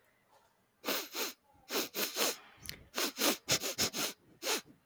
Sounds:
Sniff